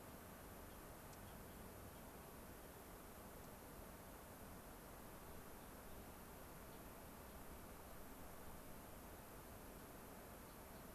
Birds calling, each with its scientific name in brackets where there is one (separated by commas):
Gray-crowned Rosy-Finch (Leucosticte tephrocotis), Dark-eyed Junco (Junco hyemalis)